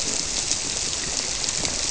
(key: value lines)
label: biophony
recorder: SoundTrap 300